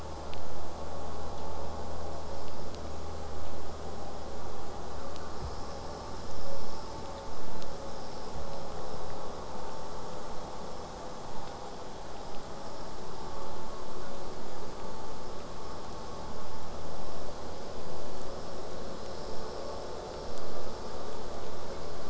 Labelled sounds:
13.7	14.5	killer whale, southern resident, J pod, 0.47 to 1.5 kHz

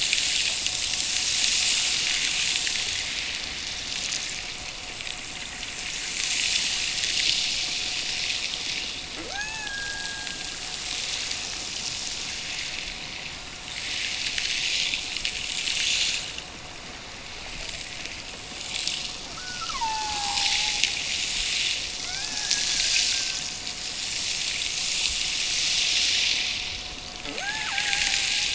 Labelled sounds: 9.2	10.7	killer whale, Bigg's (transient), Gulf of Alaska transient, 0.55 to 2.7 kHz
19.3	20.9	killer whale, Bigg's (transient), Gulf of Alaska transient, 0.64 to 2.5 kHz
22.0	23.5	killer whale, Bigg's (transient), Gulf of Alaska transient, 1.1 to 1.9 kHz
27.2	28.5	killer whale, Bigg's (transient), Gulf of Alaska transient, 0.16 to 1.9 kHz

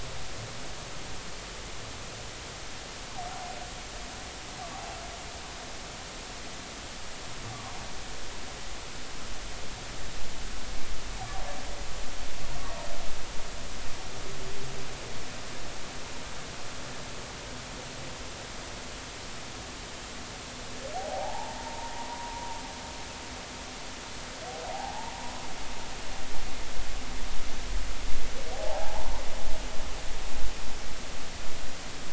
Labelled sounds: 20.9	22.5	humpback whale, 0.80 to 1.0 kHz
24.7	25.1	humpback whale, 0.80 to 1.0 kHz
28.5	29.2	humpback whale, 0.80 to 1.1 kHz

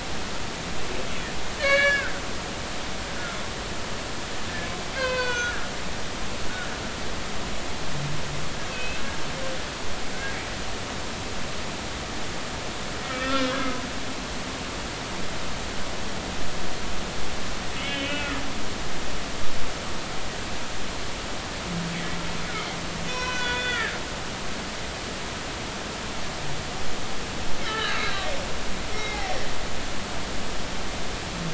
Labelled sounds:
1.6	2.2	humpback whale, 1.3 to 4.6 kHz
4.9	5.6	humpback whale, 0.96 to 4.3 kHz
8.7	9.0	humpback whale, 2.5 to 2.7 kHz
13.0	13.6	humpback whale, 1.2 to 3.6 kHz
17.8	18.3	humpback whale, 1.4 to 3.4 kHz
23.1	24.8	humpback whale, 0.96 to 6.1 kHz
27.6	28.3	humpback whale, 1.2 to 4.1 kHz
28.9	29.3	humpback whale, 1.8 to 2.2 kHz

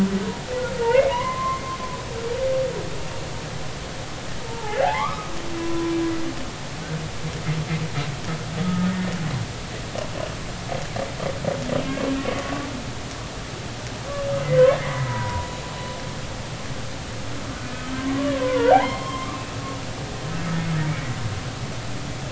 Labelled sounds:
0.8	1.7	humpback whale, 0.86 to 2.2 kHz
4.5	5.3	humpback whale, 0.80 to 1.8 kHz
5.6	5.9	humpback whale, 0.96 to 1.0 kHz
8.6	9.1	humpback whale, 1.2 to 1.9 kHz
12.2	12.4	humpback whale, 1.1 to 1.2 kHz
14.8	15.5	humpback whale, 0.90 to 2.1 kHz
17.9	19.3	humpback whale, 0.80 to 4.3 kHz

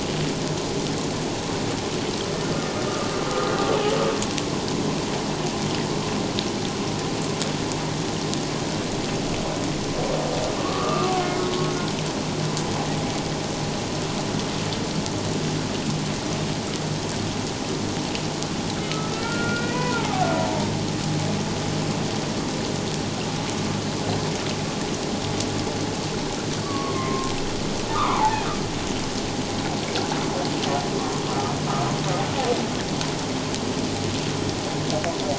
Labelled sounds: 10.6	11.3	humpback whale, 1.0 to 1.4 kHz
18.9	20.3	humpback whale, 0.78 to 2.5 kHz
26.6	27.3	humpback whale, 0.97 to 1.2 kHz
27.9	28.4	humpback whale, 0.78 to 1.4 kHz
31.2	31.5	humpback whale, 1.2 to 1.4 kHz

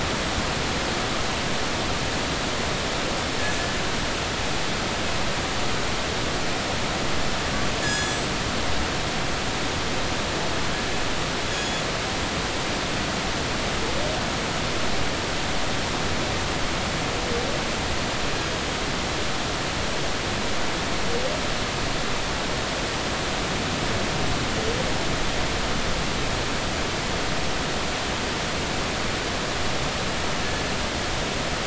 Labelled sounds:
3.5	3.8	killer whale, northern resident, G clan, call N24ii, 5.9 to 6.1 kHz
7.8	8.3	killer whale, northern resident, G clan, call N24ii, 1.6 to 7.8 kHz
11.5	11.8	killer whale, northern resident, G clan, call N24ii, 3.3 to 6.8 kHz

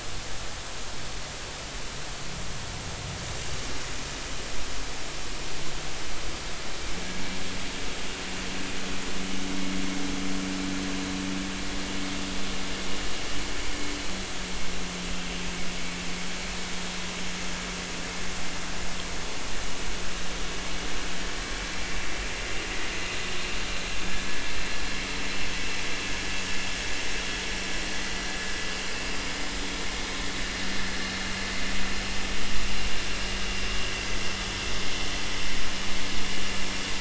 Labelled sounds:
29.3	29.6	vessel noise, 4.9 to 5.2 kHz

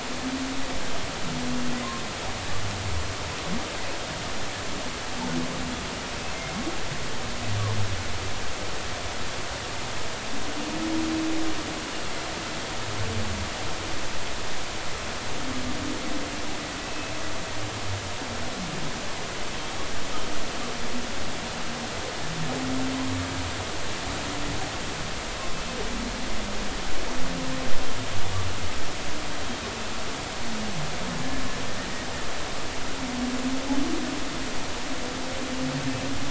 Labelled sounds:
16.8	17.1	humpback whale, 2.5 to 2.7 kHz

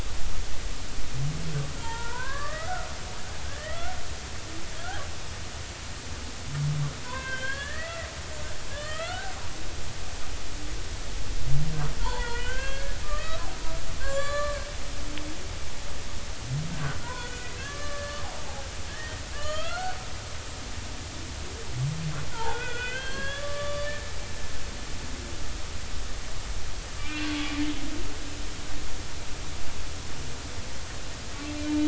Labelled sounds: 1.8	2.7	humpback whale, 0.86 to 3.3 kHz
3.4	4.0	humpback whale, 1.2 to 2.2 kHz
7.0	8.1	humpback whale, 0.93 to 3.5 kHz
8.7	9.3	humpback whale, 1.1 to 3.8 kHz
12.0	13.5	humpback whale, 0.83 to 4.4 kHz
14.0	14.7	humpback whale, 1.0 to 7.5 kHz
17.0	18.2	humpback whale, 0.90 to 6.5 kHz
18.9	20.0	humpback whale, 1.1 to 4.6 kHz
22.3	24.1	humpback whale, 0.80 to 4.4 kHz
27.0	27.3	humpback whale, 1.5 to 2.5 kHz

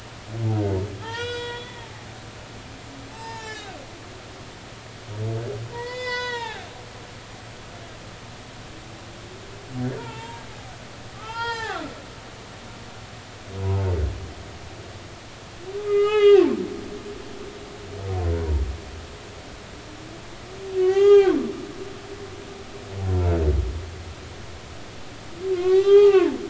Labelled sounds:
1.0	1.9	humpback whale, 0.83 to 7.8 kHz
3.1	3.8	humpback whale, 0.80 to 5.5 kHz
5.7	6.7	humpback whale, 0.80 to 6.5 kHz
10.0	11.9	humpback whale, 0.80 to 6.6 kHz
15.8	16.5	humpback whale, 1.2 to 3.9 kHz
18.3	18.6	humpback whale, 0.90 to 0.99 kHz
20.7	21.4	humpback whale, 0.80 to 7.0 kHz
25.5	26.4	humpback whale, 0.80 to 4.6 kHz

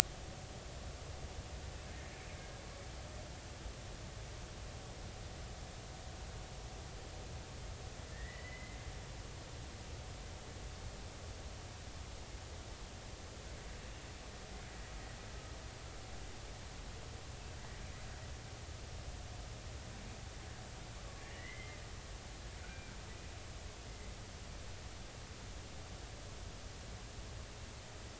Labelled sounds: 8.1	8.8	killer whale, Bigg's (transient), 1.7 to 2.1 kHz
21.2	21.8	killer whale, Bigg's (transient), 1.7 to 2.1 kHz
22.6	22.9	killer whale, Bigg's (transient), 1.3 to 1.6 kHz

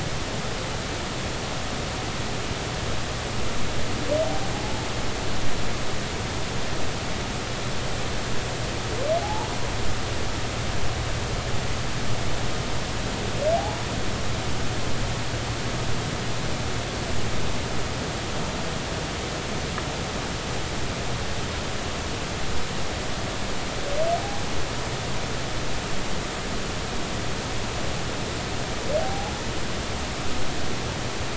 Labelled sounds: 4.5	4.8	humpback whale, 0.80 to 0.90 kHz
9.2	9.6	humpback whale, 0.80 to 0.99 kHz
13.6	13.8	humpback whale, 0.80 to 0.99 kHz
29.0	29.3	humpback whale, 0.80 to 0.90 kHz

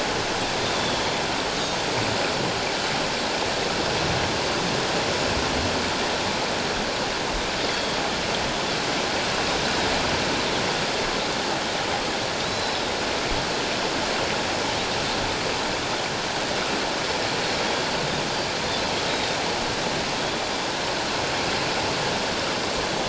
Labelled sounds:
0.7	1.1	Pacific white-sided dolphin, 3.2 to 3.6 kHz
7.7	8.0	Pacific white-sided dolphin, 3.2 to 3.5 kHz
12.4	12.8	Pacific white-sided dolphin, 3.6 to 4.1 kHz
19.1	19.4	Pacific white-sided dolphin, 3.6 to 3.9 kHz

